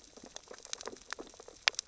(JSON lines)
{"label": "biophony, sea urchins (Echinidae)", "recorder": "SoundTrap 600 or HydroMoth"}